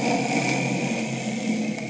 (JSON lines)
{"label": "anthrophony, boat engine", "recorder": "HydroMoth"}